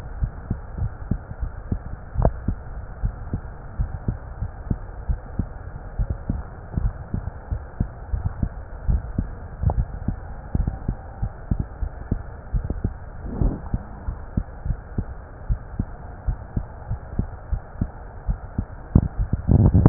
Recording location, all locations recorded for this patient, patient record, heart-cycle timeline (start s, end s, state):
aortic valve (AV)
aortic valve (AV)+pulmonary valve (PV)+tricuspid valve (TV)+mitral valve (MV)
#Age: Child
#Sex: Female
#Height: 144.0 cm
#Weight: 32.6 kg
#Pregnancy status: False
#Murmur: Absent
#Murmur locations: nan
#Most audible location: nan
#Systolic murmur timing: nan
#Systolic murmur shape: nan
#Systolic murmur grading: nan
#Systolic murmur pitch: nan
#Systolic murmur quality: nan
#Diastolic murmur timing: nan
#Diastolic murmur shape: nan
#Diastolic murmur grading: nan
#Diastolic murmur pitch: nan
#Diastolic murmur quality: nan
#Outcome: Normal
#Campaign: 2015 screening campaign
0.00	0.16	unannotated
0.16	0.30	S1
0.30	0.46	systole
0.46	0.58	S2
0.58	0.80	diastole
0.80	0.92	S1
0.92	1.08	systole
1.08	1.20	S2
1.20	1.40	diastole
1.40	1.54	S1
1.54	1.70	systole
1.70	1.86	S2
1.86	2.16	diastole
2.16	2.34	S1
2.34	2.46	systole
2.46	2.58	S2
2.58	3.00	diastole
3.00	3.12	S1
3.12	3.30	systole
3.30	3.42	S2
3.42	3.76	diastole
3.76	3.90	S1
3.90	4.04	systole
4.04	4.16	S2
4.16	4.38	diastole
4.38	4.50	S1
4.50	4.64	systole
4.64	4.78	S2
4.78	5.06	diastole
5.06	5.20	S1
5.20	5.36	systole
5.36	5.46	S2
5.46	5.96	diastole
5.96	6.08	S1
6.08	6.28	systole
6.28	6.39	S2
6.39	6.74	diastole
6.74	6.92	S1
6.92	7.12	systole
7.12	7.24	S2
7.24	7.50	diastole
7.50	7.64	S1
7.64	7.78	systole
7.78	7.88	S2
7.88	8.10	diastole
8.10	8.24	S1
8.24	8.40	systole
8.40	8.54	S2
8.54	8.84	diastole
8.84	9.02	S1
9.02	9.17	systole
9.17	9.26	S2
9.26	9.68	diastole
9.68	9.86	S1
9.86	10.06	systole
10.06	10.22	S2
10.22	10.52	diastole
10.52	10.68	S1
10.68	10.86	systole
10.86	10.96	S2
10.96	11.20	diastole
11.20	11.34	S1
11.34	11.50	systole
11.50	11.58	S2
11.58	11.80	diastole
11.80	11.94	S1
11.94	12.10	systole
12.10	12.24	S2
12.24	12.52	diastole
12.52	12.65	S1
12.65	12.82	systole
12.82	12.93	S2
12.93	13.38	diastole
13.38	13.54	S1
13.54	13.72	systole
13.72	13.82	S2
13.82	14.06	diastole
14.06	14.20	S1
14.20	14.36	systole
14.36	14.46	S2
14.46	14.64	diastole
14.64	14.78	S1
14.78	14.96	systole
14.96	15.06	S2
15.06	15.47	diastole
15.47	15.58	S1
15.58	15.78	systole
15.78	15.86	S2
15.86	16.26	diastole
16.26	16.40	S1
16.40	16.56	systole
16.56	16.66	S2
16.66	16.88	diastole
16.88	17.00	S1
17.00	17.14	systole
17.14	17.26	S2
17.26	17.48	diastole
17.48	17.60	S1
17.60	17.80	systole
17.80	17.90	S2
17.90	18.20	diastole
18.20	18.36	S1
18.36	18.54	systole
18.54	18.68	S2
18.68	19.89	unannotated